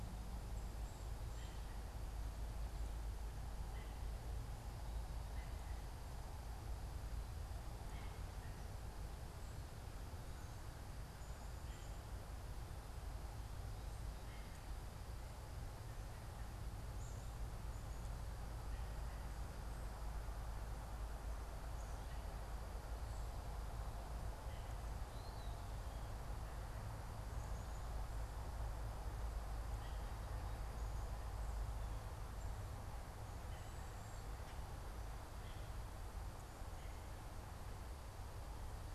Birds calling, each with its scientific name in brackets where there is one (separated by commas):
Eastern Wood-Pewee (Contopus virens), American Robin (Turdus migratorius)